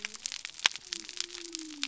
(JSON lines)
{"label": "biophony", "recorder": "SoundTrap 300"}